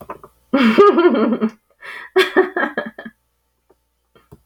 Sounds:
Laughter